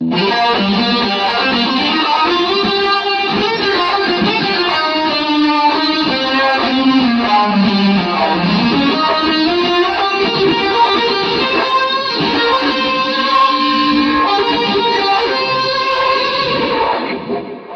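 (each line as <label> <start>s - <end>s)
An electric guitar is playing over a speaker in a room. 0.0s - 17.8s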